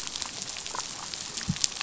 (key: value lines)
label: biophony, damselfish
recorder: SoundTrap 500